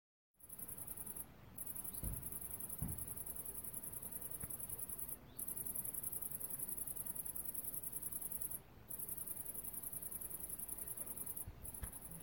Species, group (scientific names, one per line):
Tettigonia viridissima
Orthoptera